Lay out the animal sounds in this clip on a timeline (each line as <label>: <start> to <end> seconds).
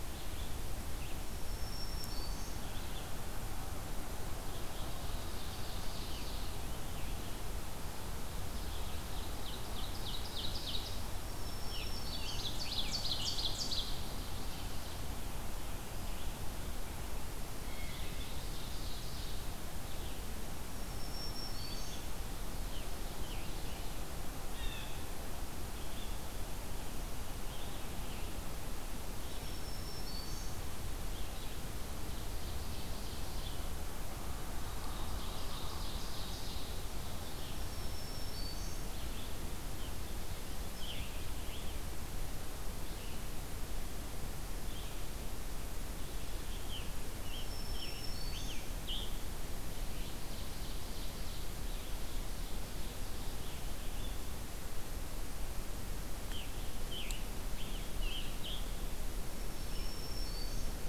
Red-eyed Vireo (Vireo olivaceus): 0.0 to 44.9 seconds
Black-throated Green Warbler (Setophaga virens): 1.1 to 2.7 seconds
Ovenbird (Seiurus aurocapilla): 4.3 to 6.8 seconds
Ovenbird (Seiurus aurocapilla): 8.6 to 11.0 seconds
Black-throated Green Warbler (Setophaga virens): 11.2 to 12.6 seconds
Ovenbird (Seiurus aurocapilla): 11.7 to 14.8 seconds
Ovenbird (Seiurus aurocapilla): 17.5 to 19.4 seconds
Black-throated Green Warbler (Setophaga virens): 20.6 to 22.1 seconds
Scarlet Tanager (Piranga olivacea): 22.4 to 24.1 seconds
Blue Jay (Cyanocitta cristata): 24.4 to 25.0 seconds
Black-throated Green Warbler (Setophaga virens): 29.1 to 30.8 seconds
Ovenbird (Seiurus aurocapilla): 32.0 to 33.6 seconds
Ovenbird (Seiurus aurocapilla): 34.7 to 36.8 seconds
Black-throated Green Warbler (Setophaga virens): 37.3 to 39.0 seconds
Scarlet Tanager (Piranga olivacea): 39.7 to 41.8 seconds
Scarlet Tanager (Piranga olivacea): 46.5 to 49.2 seconds
Black-throated Green Warbler (Setophaga virens): 47.2 to 48.7 seconds
Ovenbird (Seiurus aurocapilla): 49.9 to 53.0 seconds
Scarlet Tanager (Piranga olivacea): 56.2 to 58.6 seconds
Black-throated Green Warbler (Setophaga virens): 59.0 to 60.9 seconds